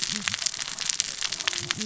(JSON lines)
{"label": "biophony, cascading saw", "recorder": "SoundTrap 600 or HydroMoth"}